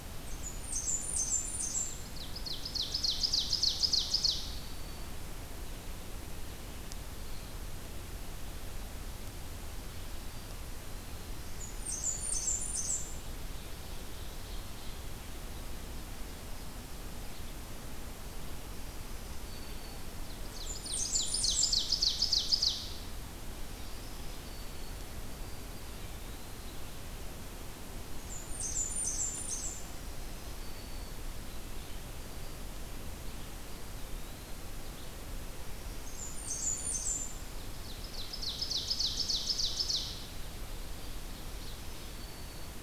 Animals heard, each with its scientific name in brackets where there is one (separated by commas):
Black-throated Green Warbler (Setophaga virens), Ovenbird (Seiurus aurocapilla), Eastern Wood-Pewee (Contopus virens), Blackburnian Warbler (Setophaga fusca)